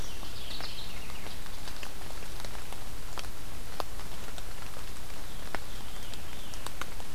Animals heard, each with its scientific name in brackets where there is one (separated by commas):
Veery (Catharus fuscescens), Mourning Warbler (Geothlypis philadelphia)